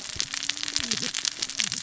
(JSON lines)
{"label": "biophony, cascading saw", "recorder": "SoundTrap 600 or HydroMoth"}